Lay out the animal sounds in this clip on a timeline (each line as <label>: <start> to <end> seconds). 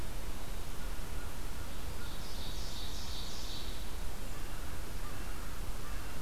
Ovenbird (Seiurus aurocapilla): 2.0 to 3.9 seconds